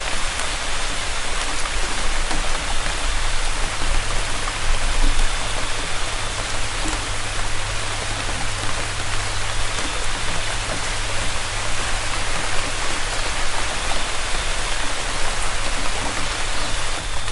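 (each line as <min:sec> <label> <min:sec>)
0:00.0 Light rain falls on a wooden deck. 0:17.3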